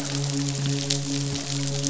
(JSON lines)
{"label": "biophony, midshipman", "recorder": "SoundTrap 500"}